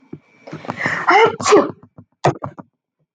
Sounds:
Sneeze